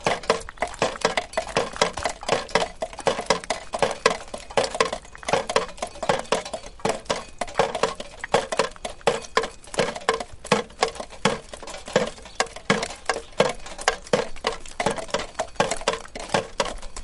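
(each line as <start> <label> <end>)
0.0 A cowbell rings in the background as plastic or metal parts hit together rhythmically. 17.0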